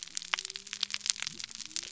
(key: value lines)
label: biophony
recorder: SoundTrap 300